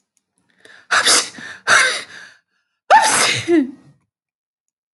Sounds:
Sneeze